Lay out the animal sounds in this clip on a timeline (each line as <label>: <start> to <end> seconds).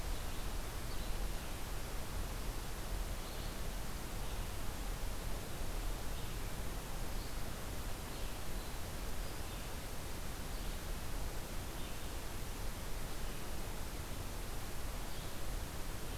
Red-eyed Vireo (Vireo olivaceus): 0.0 to 16.2 seconds